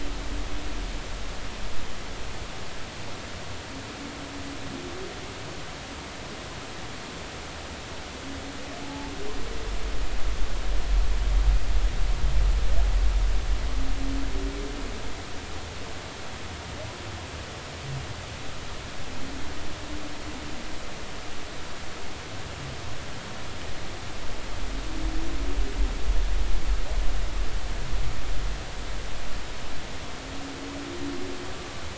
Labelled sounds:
8.8	9.1	humpback whale, 0.80 to 0.93 kHz

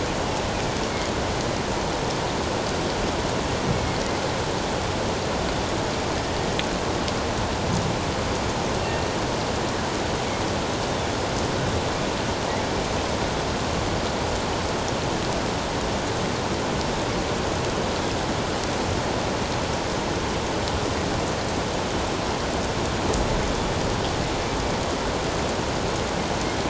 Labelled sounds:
3.7	4.0	killer whale, northern resident, 2.1 to 2.2 kHz

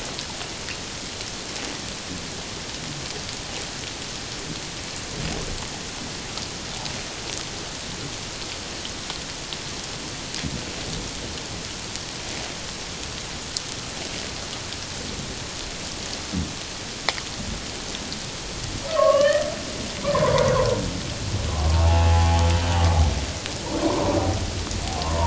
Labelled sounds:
18.9	20.5	humpback whale, 0.88 to 3.2 kHz
21.7	22.9	humpback whale, 0.78 to 3.1 kHz
23.8	24.2	humpback whale, 0.91 to 1.1 kHz

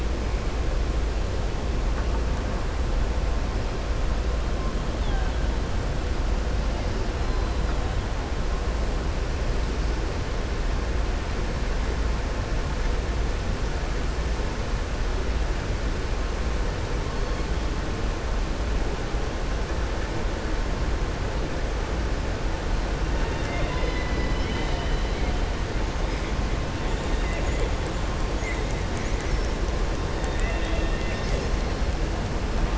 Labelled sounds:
30.2	31.4	killer whale, southern resident, 1.8 to 3.7 kHz

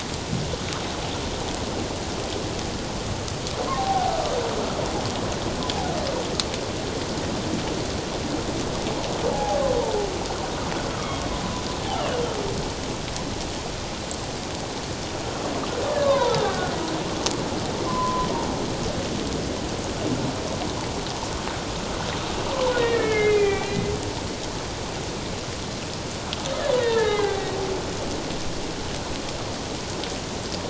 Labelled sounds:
3.6	4.1	humpback whale, 0.78 to 1.2 kHz
9.3	9.6	humpback whale, 0.78 to 0.88 kHz
10.9	11.2	humpback whale, 1.1 to 1.4 kHz
16.0	16.7	humpback whale, 0.84 to 1.6 kHz
17.9	18.3	humpback whale, 0.94 to 1.1 kHz
22.5	23.9	humpback whale, 0.78 to 2.6 kHz
26.7	27.5	humpback whale, 0.78 to 3.9 kHz

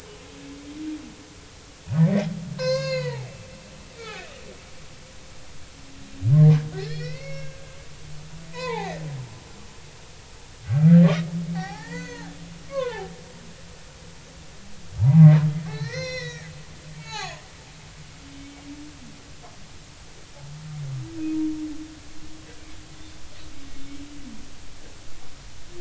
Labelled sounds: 2.0	3.3	humpback whale, 0.80 to 7.0 kHz
4.0	4.3	humpback whale, 1.4 to 1.9 kHz
6.8	7.6	humpback whale, 1.5 to 5.6 kHz
8.5	9.0	humpback whale, 0.80 to 2.6 kHz
11.0	12.4	humpback whale, 0.80 to 6.6 kHz
12.7	13.1	humpback whale, 0.80 to 2.8 kHz
15.0	16.5	humpback whale, 0.80 to 6.3 kHz
17.0	18.4	humpback whale, 0.80 to 6.8 kHz

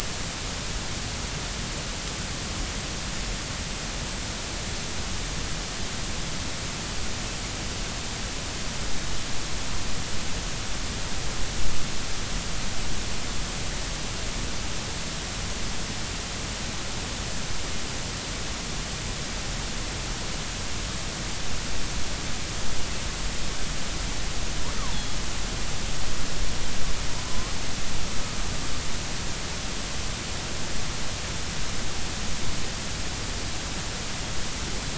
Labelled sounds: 24.8	25.0	killer whale, northern resident, G clan, 0.80 to 1.3 kHz
27.3	27.6	killer whale, 0.96 to 1.3 kHz

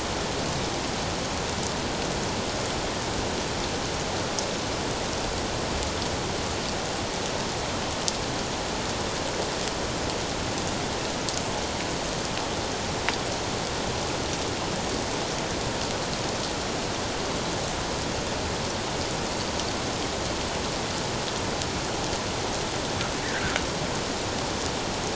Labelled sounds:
23.2	23.6	fish, 1.4 to 2.0 kHz

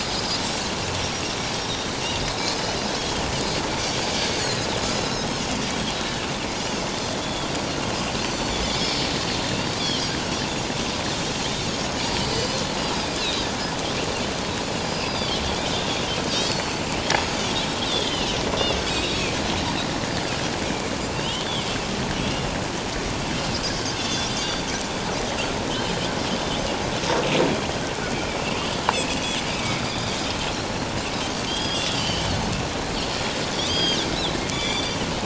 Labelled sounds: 0.9	1.2	Pacific white-sided dolphin, 5.5 to 6.0 kHz
3.0	3.2	Pacific white-sided dolphin, 3.1 to 3.4 kHz
4.4	5.3	Pacific white-sided dolphin, 3.8 to 4.4 kHz
7.2	7.5	Pacific white-sided dolphin, 3.1 to 3.5 kHz
8.2	8.6	Pacific white-sided dolphin, 4.3 to 6.1 kHz
9.8	10.1	Pacific white-sided dolphin, 5.4 to 5.9 kHz
11.7	12.6	Pacific white-sided dolphin, 2.9 to 6.8 kHz
13.2	13.5	Pacific white-sided dolphin, 3.6 to 4.1 kHz
14.8	16.7	Pacific white-sided dolphin, 3.0 to 5.2 kHz
17.9	19.2	Pacific white-sided dolphin, 2.5 to 4.0 kHz
21.1	21.5	Pacific white-sided dolphin, 2.6 to 3.3 kHz
23.9	24.7	Pacific white-sided dolphin, 3.3 to 4.8 kHz
28.1	28.4	Pacific white-sided dolphin, 2.2 to 2.5 kHz
28.9	29.2	Pacific white-sided dolphin, 2.4 to 2.9 kHz
29.6	29.8	Pacific white-sided dolphin, 2.1 to 2.3 kHz
31.2	32.3	Pacific white-sided dolphin, 2.9 to 8.0 kHz
33.6	35.0	Pacific white-sided dolphin, 2.2 to 8.0 kHz

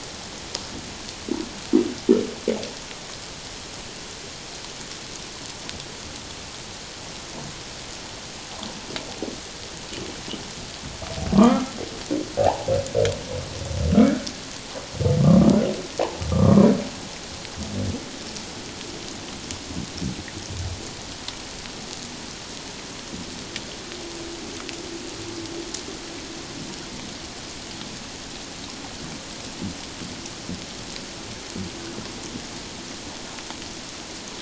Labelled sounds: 11.4	12.7	humpback whale, 0.78 to 1.4 kHz
13.9	14.2	humpback whale, 1.2 to 1.8 kHz
15.2	15.6	humpback whale, 1.0 to 1.4 kHz
16.3	16.8	humpback whale, 0.94 to 1.3 kHz

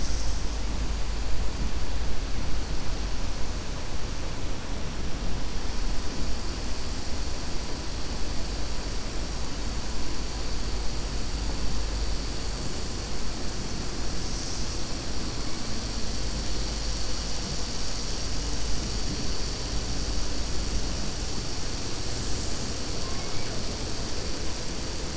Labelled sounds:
23.0	23.5	killer whale, 0.70 to 2.4 kHz

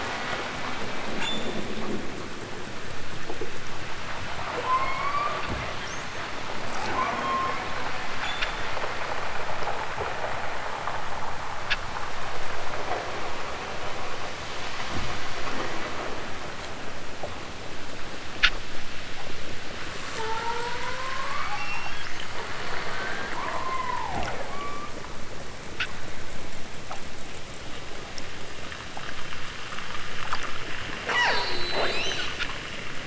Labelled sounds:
0.6	1.6	killer whale, southern Alaska resident, 0.60 to 8.0 kHz
4.6	5.5	killer whale, southern Alaska resident, 0.64 to 5.9 kHz
6.7	7.7	killer whale, southern Alaska resident, 0.46 to 8.0 kHz
8.0	8.7	killer whale, southern Alaska resident, 0.74 to 7.5 kHz
20.1	22.3	killer whale, southern Alaska resident, 0.23 to 8.0 kHz
22.8	25.0	killer whale, southern Alaska resident, 0.23 to 8.0 kHz
31.0	32.5	killer whale, southern Alaska resident, 0.28 to 8.0 kHz

